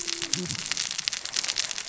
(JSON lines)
{"label": "biophony, cascading saw", "recorder": "SoundTrap 600 or HydroMoth"}